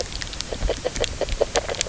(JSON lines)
{"label": "biophony, grazing", "recorder": "SoundTrap 300"}